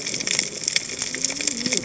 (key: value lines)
label: biophony, cascading saw
recorder: HydroMoth